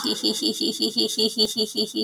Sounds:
Laughter